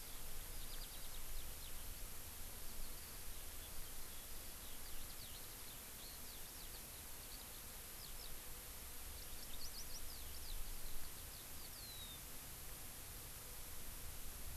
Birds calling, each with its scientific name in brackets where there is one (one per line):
Eurasian Skylark (Alauda arvensis)